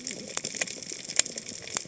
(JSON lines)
{"label": "biophony, cascading saw", "recorder": "HydroMoth"}